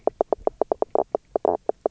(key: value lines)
label: biophony, knock croak
recorder: SoundTrap 300